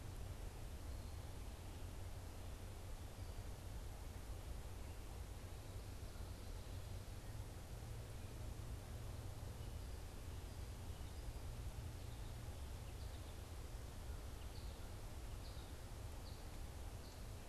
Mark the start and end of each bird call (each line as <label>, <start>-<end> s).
American Goldfinch (Spinus tristis), 11.7-17.5 s